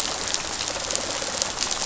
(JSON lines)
{"label": "biophony, rattle response", "recorder": "SoundTrap 500"}